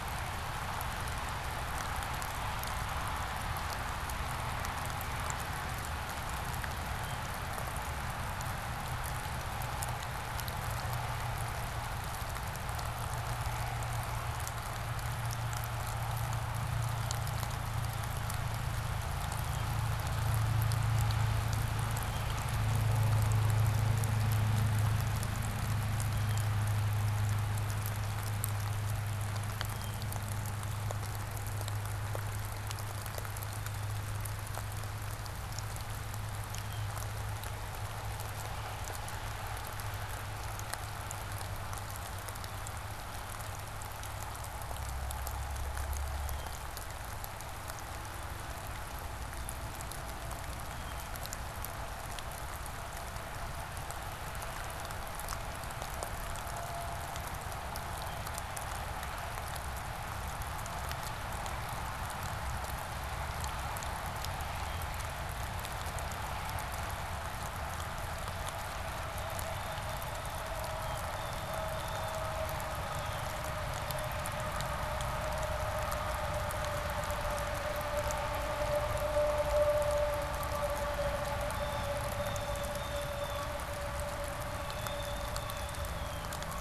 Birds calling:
Blue Jay (Cyanocitta cristata)

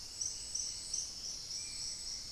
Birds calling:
Spot-winged Antshrike (Pygiptila stellaris), Dusky-throated Antshrike (Thamnomanes ardesiacus)

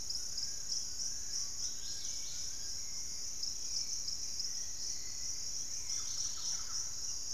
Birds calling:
Hauxwell's Thrush (Turdus hauxwelli), Thrush-like Wren (Campylorhynchus turdinus), Dusky-capped Greenlet (Pachysylvia hypoxantha), Fasciated Antshrike (Cymbilaimus lineatus)

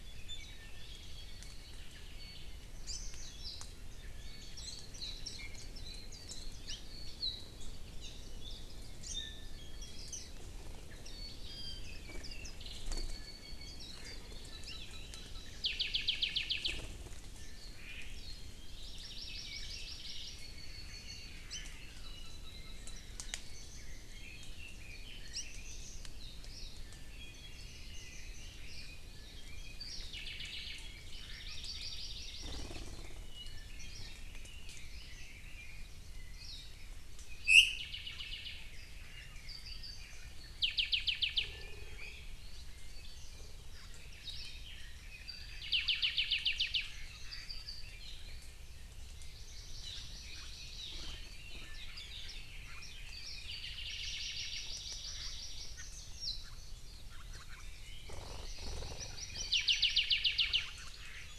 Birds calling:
Warbling White-eye (Zosterops japonicus), Red-billed Leiothrix (Leiothrix lutea), Omao (Myadestes obscurus), Hawaii Amakihi (Chlorodrepanis virens), Iiwi (Drepanis coccinea), Apapane (Himatione sanguinea), Chinese Hwamei (Garrulax canorus), Hawaii Creeper (Loxops mana)

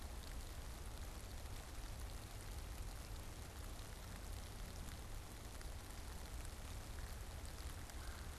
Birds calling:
Red-bellied Woodpecker (Melanerpes carolinus)

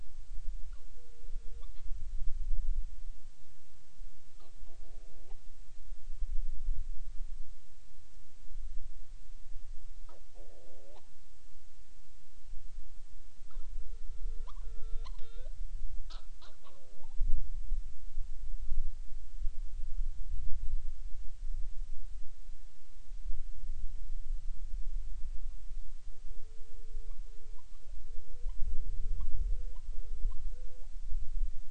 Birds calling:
Hawaiian Petrel (Pterodroma sandwichensis)

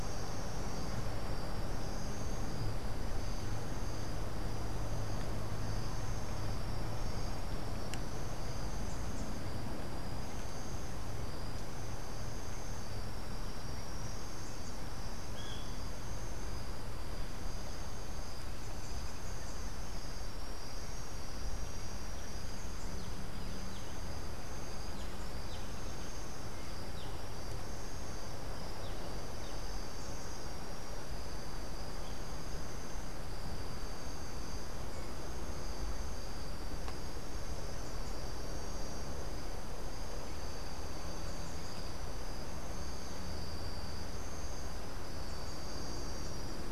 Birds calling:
Brown Jay (Psilorhinus morio)

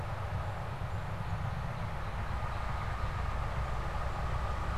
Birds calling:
Northern Cardinal (Cardinalis cardinalis)

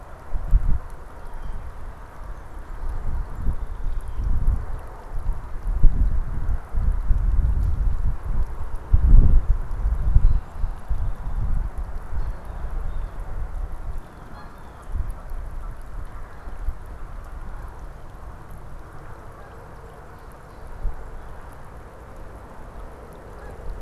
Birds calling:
Canada Goose (Branta canadensis), Blue Jay (Cyanocitta cristata), Song Sparrow (Melospiza melodia)

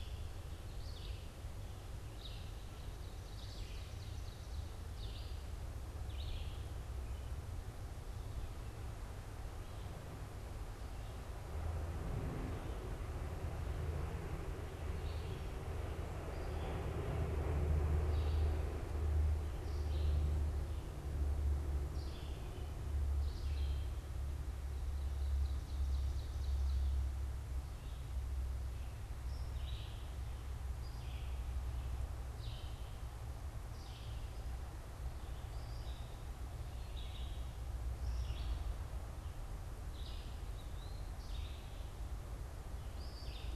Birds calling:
Red-eyed Vireo (Vireo olivaceus), Ovenbird (Seiurus aurocapilla), Eastern Wood-Pewee (Contopus virens)

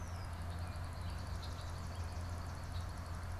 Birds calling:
Swamp Sparrow (Melospiza georgiana)

